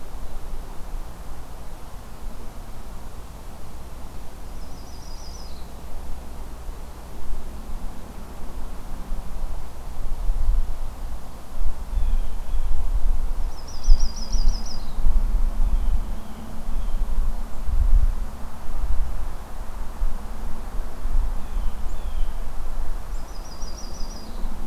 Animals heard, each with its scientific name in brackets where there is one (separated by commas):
Yellow-rumped Warbler (Setophaga coronata), Blue Jay (Cyanocitta cristata)